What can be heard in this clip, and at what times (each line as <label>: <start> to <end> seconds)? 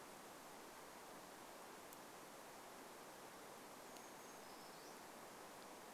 Brown Creeper song: 4 to 6 seconds